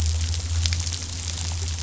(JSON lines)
{"label": "anthrophony, boat engine", "recorder": "SoundTrap 500"}